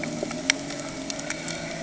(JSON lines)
{"label": "anthrophony, boat engine", "recorder": "HydroMoth"}